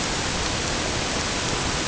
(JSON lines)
{"label": "ambient", "recorder": "HydroMoth"}